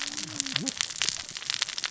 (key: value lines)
label: biophony, cascading saw
recorder: SoundTrap 600 or HydroMoth